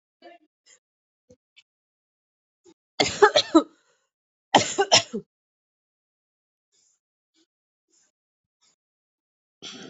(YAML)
expert_labels:
- quality: good
  cough_type: dry
  dyspnea: false
  wheezing: false
  stridor: false
  choking: false
  congestion: true
  nothing: false
  diagnosis: COVID-19
  severity: mild
age: 39
gender: female
respiratory_condition: false
fever_muscle_pain: false
status: symptomatic